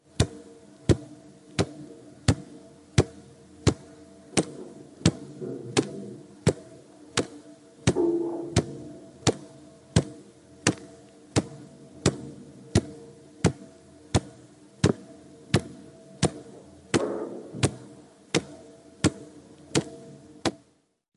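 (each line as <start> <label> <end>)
0.1 A liquid is dripping in a steady rhythmic pattern. 20.8
5.4 People talking calmly in the background. 6.3
7.8 A dropping sound. 8.6
16.8 A dropping sound. 17.5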